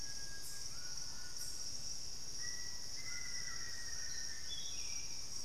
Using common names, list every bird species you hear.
White-throated Toucan, Black-faced Antthrush, Hauxwell's Thrush